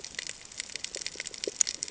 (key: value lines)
label: ambient
recorder: HydroMoth